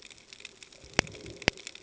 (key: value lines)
label: ambient
recorder: HydroMoth